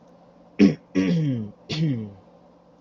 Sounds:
Throat clearing